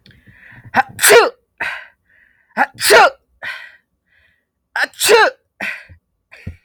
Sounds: Sneeze